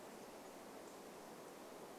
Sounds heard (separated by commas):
unidentified bird chip note